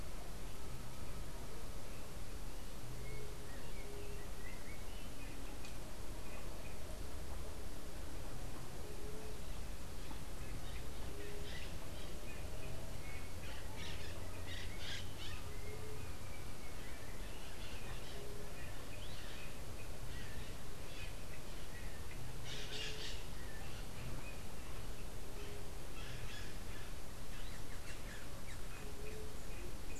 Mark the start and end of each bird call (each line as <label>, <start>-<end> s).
Bronze-winged Parrot (Pionus chalcopterus), 13.3-15.6 s
Bronze-winged Parrot (Pionus chalcopterus), 22.4-23.3 s